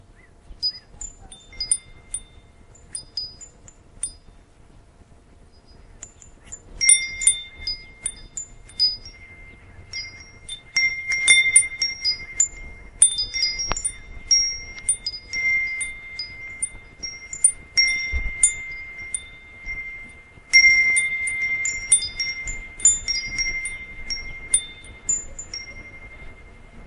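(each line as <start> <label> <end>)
0.0 A bird sings in the distance. 1.4
0.4 Wind chimes tinkling in the wind. 4.5
5.9 Wind chimes tinkle continuously, producing high and low tones. 26.4
6.3 A bird sings continuously in the distance outdoors. 26.9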